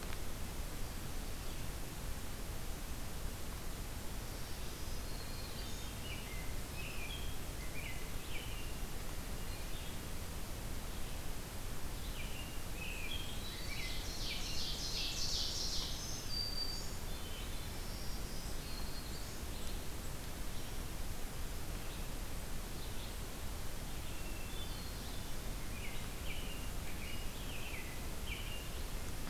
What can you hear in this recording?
Black-throated Green Warbler, American Robin, Hermit Thrush, Ovenbird, Red-eyed Vireo